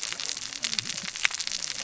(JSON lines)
{"label": "biophony, cascading saw", "recorder": "SoundTrap 600 or HydroMoth"}